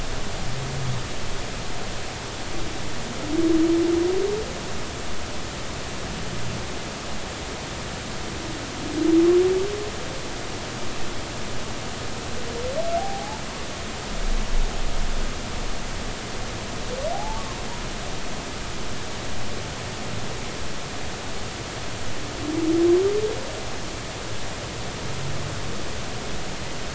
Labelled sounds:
13.0	13.4	humpback whale, 0.80 to 0.99 kHz
17.1	17.4	humpback whale, 0.80 to 0.93 kHz

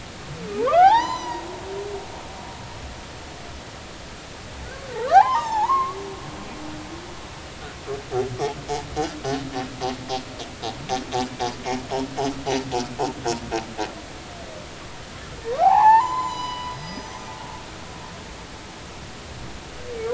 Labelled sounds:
0.6	1.4	humpback whale, 0.80 to 6.1 kHz
5.1	6.0	humpback whale, 0.80 to 5.6 kHz
15.6	17.4	humpback whale, 0.80 to 7.2 kHz

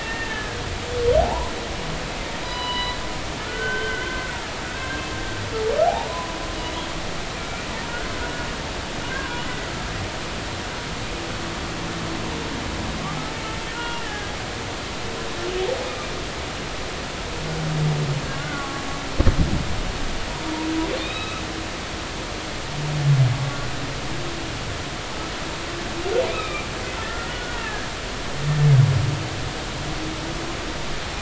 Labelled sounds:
0.0	0.6	humpback whale, 1.5 to 2.8 kHz
1.2	1.5	humpback whale, 0.80 to 1.1 kHz
2.4	4.2	humpback whale, 0.93 to 5.0 kHz
4.8	5.0	humpback whale, 1.5 to 1.7 kHz
6.1	6.8	humpback whale, 0.96 to 3.1 kHz
7.3	7.6	humpback whale, 2.3 to 2.5 kHz
9.1	9.5	humpback whale, 0.93 to 1.7 kHz
13.7	14.3	humpback whale, 0.90 to 3.0 kHz
18.4	18.8	humpback whale, 1.1 to 1.6 kHz
21.0	21.4	humpback whale, 1.2 to 3.9 kHz
26.3	27.9	humpback whale, 1.2 to 2.7 kHz

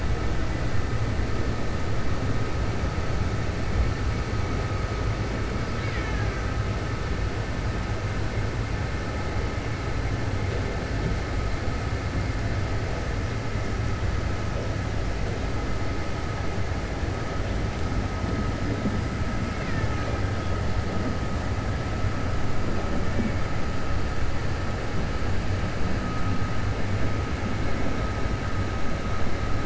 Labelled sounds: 5.6	6.4	killer whale, Bigg's (transient), 0.85 to 5.0 kHz

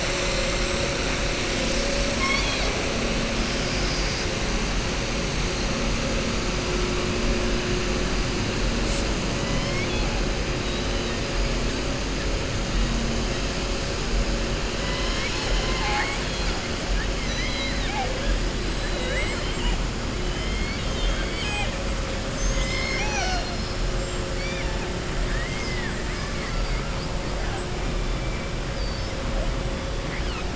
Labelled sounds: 2.1	2.8	killer whale, southern resident, 0.59 to 5.5 kHz
9.4	10.1	killer whale, southern resident, 1.0 to 4.3 kHz
17.1	18.1	killer whale, southern resident, 0.54 to 7.9 kHz
18.8	19.8	killer whale, southern resident, 0.47 to 4.2 kHz
20.3	21.7	killer whale, southern resident, 0.81 to 5.0 kHz
24.3	24.8	killer whale, southern resident, 1.7 to 5.6 kHz
25.2	26.6	killer whale, southern resident, 1.1 to 3.0 kHz
28.7	29.1	killer whale, southern resident, 4.5 to 6.1 kHz

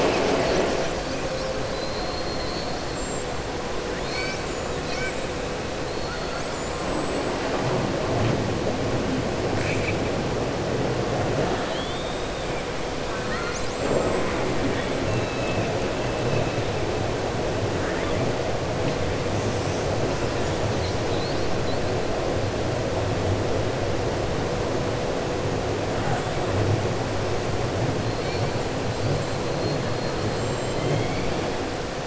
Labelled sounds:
1.7	2.7	killer whale, southern resident, 4.0 to 4.9 kHz
9.5	10.0	killer whale, southern resident, 1.6 to 3.5 kHz
11.5	12.4	killer whale, southern resident, 3.0 to 4.4 kHz
13.1	13.6	killer whale, southern resident, 1.1 to 2.4 kHz
15.0	15.7	killer whale, southern resident, 2.5 to 4.0 kHz

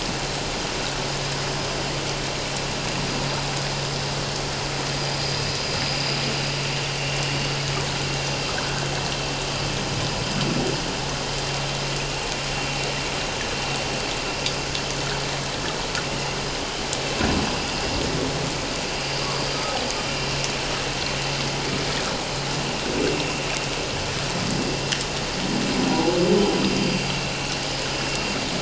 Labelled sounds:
17.4	17.7	vessel noise, 4.8 to 4.9 kHz
25.9	26.2	humpback whale, 0.78 to 1.0 kHz
27.6	27.9	vessel noise, 4.9 to 5.1 kHz

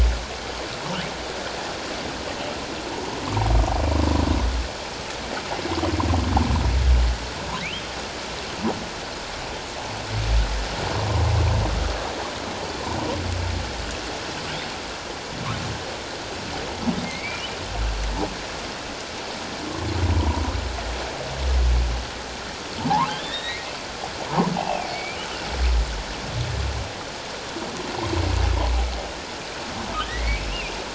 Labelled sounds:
17.0	17.5	humpback whale, 2.0 to 2.5 kHz
23.1	25.2	humpback whale, 0.78 to 4.1 kHz
30.1	30.4	humpback whale, 1.7 to 2.3 kHz

